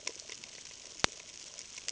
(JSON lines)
{"label": "ambient", "recorder": "HydroMoth"}